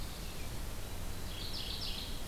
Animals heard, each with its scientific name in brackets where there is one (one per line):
Mourning Warbler (Geothlypis philadelphia)
White-throated Sparrow (Zonotrichia albicollis)